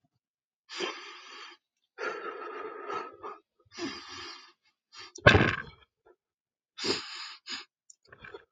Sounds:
Sigh